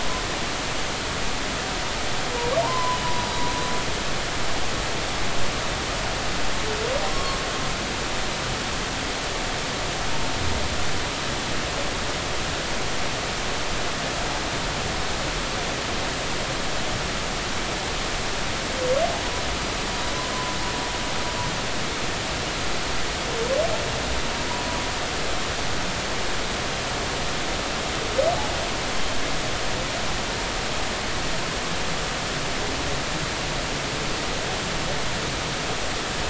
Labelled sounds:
2.6	3.0	humpback whale, 0.86 to 1.1 kHz
7.1	7.4	humpback whale, 0.99 to 1.2 kHz

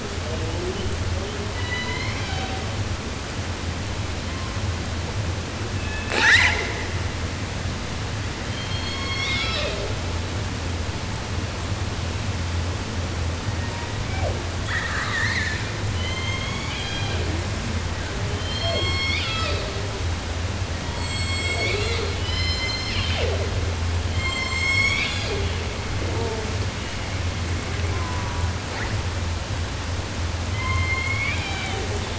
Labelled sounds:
1.5	2.8	killer whale, southern resident, J pod, call S01, 0.10 to 8.0 kHz
4.1	4.9	killer whale, 0.54 to 3.6 kHz
5.7	7.1	killer whale, 0.17 to 8.0 kHz
8.4	10.0	killer whale, southern resident, J pod, call S01, 0.10 to 8.0 kHz
13.4	14.4	killer whale, 0.10 to 2.7 kHz
14.6	15.8	killer whale, southern resident, call S10, 0.10 to 8.0 kHz
15.9	17.5	killer whale, southern resident, J pod, call S01, 0.17 to 7.8 kHz
18.3	20.1	killer whale, southern resident, J pod, call S01, 0.10 to 8.0 kHz
20.6	25.8	killer whale, southern resident, J pod, call S01, 0.10 to 8.0 kHz
26.0	26.7	killer whale, 0.10 to 1.4 kHz
27.6	28.6	killer whale, southern resident, J pod, call S04, 0.31 to 2.8 kHz
28.6	29.0	killer whale, 0.24 to 5.8 kHz
30.3	32.1	killer whale, southern resident, J pod, call S01, 0.10 to 8.0 kHz

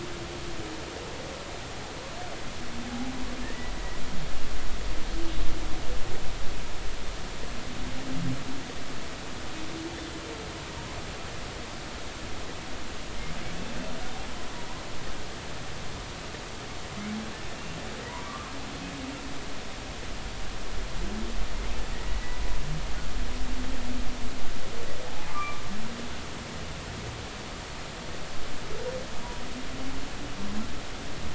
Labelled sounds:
18.1	18.5	humpback whale, 0.90 to 1.3 kHz
25.3	25.6	humpback whale, 1.1 to 1.2 kHz

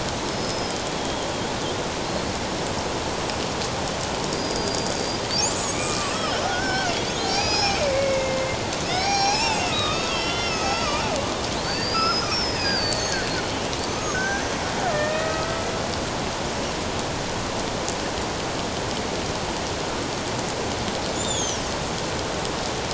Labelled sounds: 0.3	1.2	killer whale, Bigg's (transient), 3.2 to 5.4 kHz
2.0	2.3	killer whale, Bigg's (transient), 4.0 to 4.4 kHz
4.4	8.6	killer whale, Bigg's (transient), 0.78 to 8.0 kHz
8.9	11.0	killer whale, Bigg's (transient), 0.78 to 6.8 kHz
11.6	14.5	killer whale, Bigg's (transient), 1.4 to 6.6 kHz
14.9	15.7	killer whale, Bigg's (transient), 1.2 to 2.6 kHz
21.2	21.7	killer whale, Bigg's (transient), 2.8 to 7.3 kHz

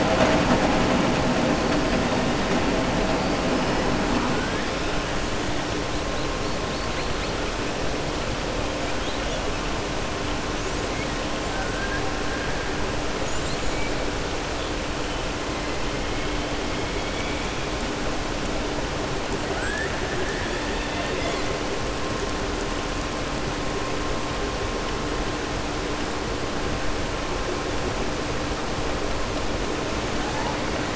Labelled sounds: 11.5	12.1	killer whale, southern resident, 0.59 to 1.8 kHz
19.5	20.0	killer whale, southern resident, 0.80 to 2.0 kHz

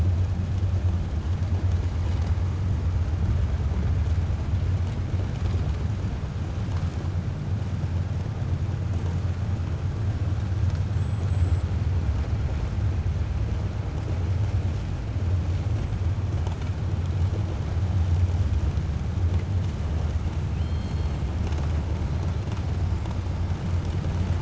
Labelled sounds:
20.5	21.1	killer whale, 2.6 to 4.3 kHz

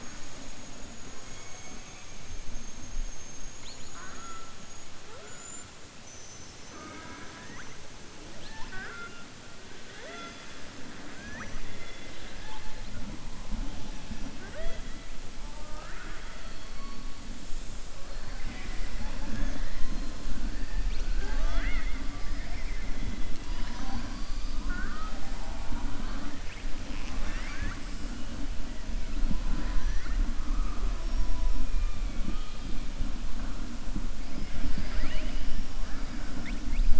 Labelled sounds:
1.2	2.1	killer whale, southern resident, 2.1 to 3.6 kHz
11.7	12.7	killer whale, southern resident, 1.4 to 4.4 kHz
15.4	16.4	killer whale, southern resident, 0.59 to 2.6 kHz
26.8	27.8	killer whale, southern resident, 0.61 to 6.5 kHz
32.2	32.7	killer whale, southern resident, 2.4 to 4.2 kHz

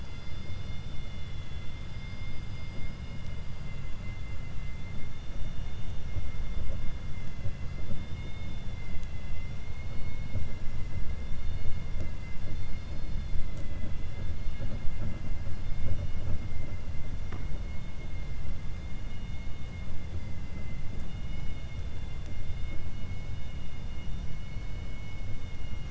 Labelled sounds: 20.1	20.9	vessel noise, 1.3 to 2.8 kHz
21.7	22.5	vessel noise, 2.1 to 4.3 kHz

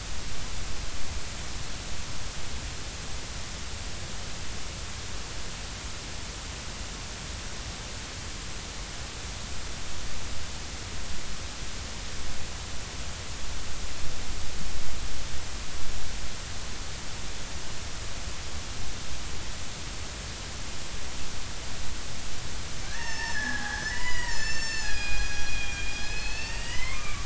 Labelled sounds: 22.8	27.2	killer whale, Bigg's (transient), call T12, 0.80 to 7.3 kHz

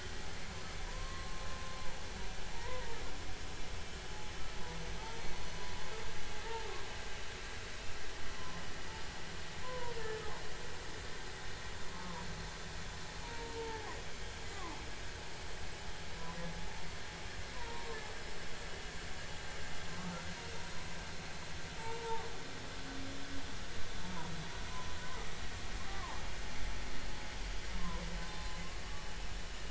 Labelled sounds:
0.9	1.4	humpback whale, 0.93 to 1.1 kHz
2.5	3.0	humpback whale, 0.86 to 2.1 kHz
8.3	8.6	humpback whale, 0.96 to 1.1 kHz
9.6	10.2	humpback whale, 0.90 to 1.8 kHz
11.9	12.3	humpback whale, 0.93 to 1.1 kHz
13.2	13.9	humpback whale, 0.80 to 0.99 kHz
14.5	14.8	humpback whale, 0.86 to 1.2 kHz
17.5	17.9	humpback whale, 0.90 to 1.1 kHz
21.8	22.2	humpback whale, 0.80 to 7.9 kHz
24.7	26.2	humpback whale, 0.83 to 1.3 kHz
28.3	28.6	humpback whale, 4.0 to 4.2 kHz

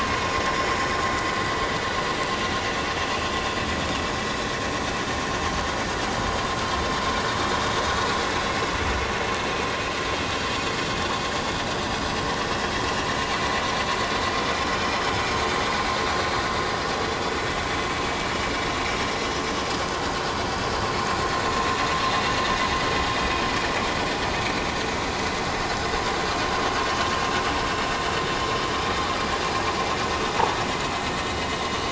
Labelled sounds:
14.6	14.9	vessel noise, 3.0 to 3.2 kHz

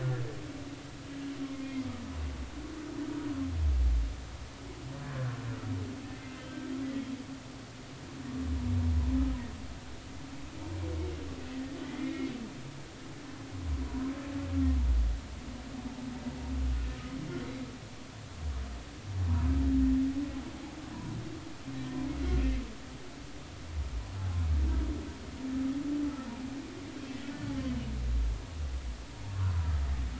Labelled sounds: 0.0	0.3	humpback whale, 1.3 to 1.5 kHz
6.1	6.7	humpback whale, 2.0 to 3.3 kHz
11.8	12.3	humpback whale, 1.9 to 2.3 kHz
29.3	29.7	humpback whale, 0.93 to 1.2 kHz

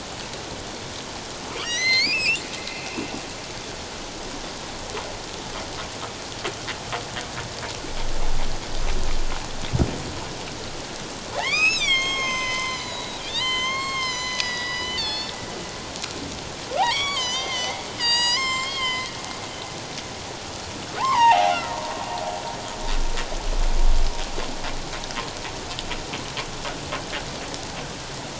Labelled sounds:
1.6	2.4	humpback whale, 1.8 to 8.0 kHz
11.3	15.4	humpback whale, 0.78 to 8.0 kHz
16.8	19.1	humpback whale, 0.78 to 8.0 kHz
21.0	21.6	humpback whale, 0.78 to 5.9 kHz

